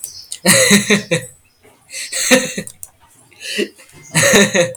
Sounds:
Laughter